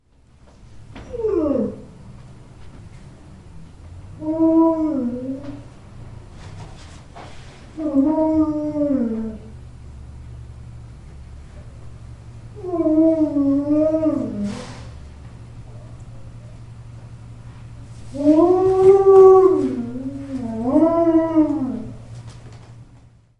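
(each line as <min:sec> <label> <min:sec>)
0:00.8 A dog makes a short, low-pitched moan inside a room. 0:02.0
0:04.0 An Alaskan Malamute dog moans, starting with a high pitch and then lowering to a deeper tone. 0:05.6
0:07.7 A dog moans in a low tone that sharply rises in the middle. 0:09.6
0:12.4 An Alaskan Malamute moans with varying volume and sudden high-pitched tones like crying. 0:14.9
0:18.1 An Alaskan Malamute dog makes a long moan that starts high, dips to a lower tone, then rises again indoors. 0:22.2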